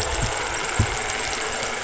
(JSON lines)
{"label": "anthrophony, boat engine", "recorder": "SoundTrap 500"}